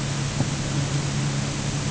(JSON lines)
{"label": "anthrophony, boat engine", "recorder": "HydroMoth"}